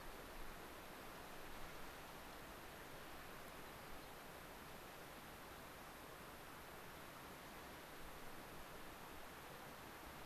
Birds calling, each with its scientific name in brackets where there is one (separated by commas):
unidentified bird